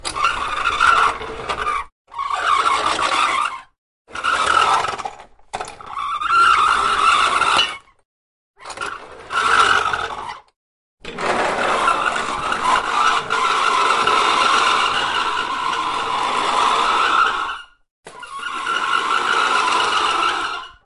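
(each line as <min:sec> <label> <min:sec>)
0:02.1 An irregular, unsettling squeaking sound of plastic wheels scraping against a surface with uneven pauses between the squeaks. 0:07.8
0:08.7 An irregular, unsettling squeaking sound of plastic wheels scraping against a surface with uneven pauses between the squeaks. 0:10.5
0:11.0 After the first half, a longer, drawn-out version of the sound is heard. 0:17.7
0:18.1 An irregular, unsettling squeaking sound of plastic wheels scraping against a surface with uneven pauses between the squeaks. 0:20.8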